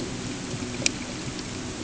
{"label": "anthrophony, boat engine", "recorder": "HydroMoth"}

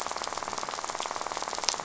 {"label": "biophony, rattle", "recorder": "SoundTrap 500"}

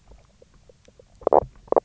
{"label": "biophony, knock croak", "recorder": "SoundTrap 300"}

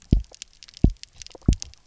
{"label": "biophony, double pulse", "recorder": "SoundTrap 300"}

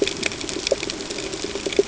{"label": "ambient", "recorder": "HydroMoth"}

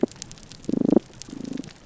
{"label": "biophony, damselfish", "recorder": "SoundTrap 300"}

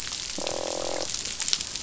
{"label": "biophony, croak", "recorder": "SoundTrap 500"}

